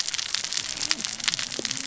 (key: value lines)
label: biophony, cascading saw
recorder: SoundTrap 600 or HydroMoth